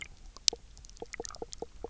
{"label": "biophony, knock croak", "recorder": "SoundTrap 300"}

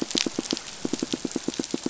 {"label": "biophony, pulse", "recorder": "SoundTrap 500"}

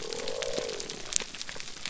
{"label": "biophony", "recorder": "SoundTrap 300"}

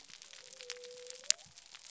{"label": "biophony", "recorder": "SoundTrap 300"}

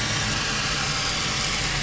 {"label": "anthrophony, boat engine", "recorder": "SoundTrap 500"}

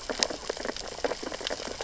{"label": "biophony, sea urchins (Echinidae)", "recorder": "SoundTrap 600 or HydroMoth"}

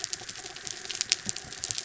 {"label": "anthrophony, mechanical", "recorder": "SoundTrap 300"}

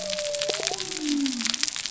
{"label": "biophony", "recorder": "SoundTrap 300"}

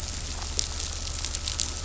{"label": "anthrophony, boat engine", "recorder": "SoundTrap 500"}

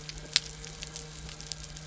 {"label": "anthrophony, boat engine", "recorder": "SoundTrap 300"}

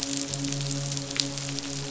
{"label": "biophony, midshipman", "recorder": "SoundTrap 500"}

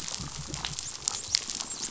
{"label": "biophony, dolphin", "recorder": "SoundTrap 500"}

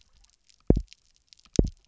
{"label": "biophony, double pulse", "recorder": "SoundTrap 300"}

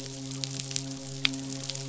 {"label": "biophony, midshipman", "recorder": "SoundTrap 500"}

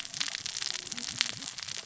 {"label": "biophony, cascading saw", "recorder": "SoundTrap 600 or HydroMoth"}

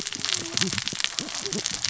{"label": "biophony, cascading saw", "recorder": "SoundTrap 600 or HydroMoth"}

